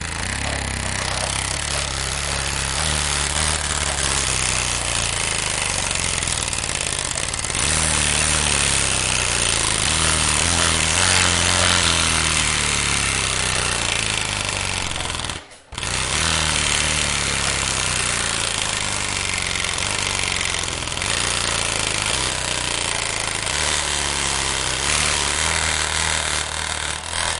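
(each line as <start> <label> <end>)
0.1 Construction noise, possibly drilling. 27.4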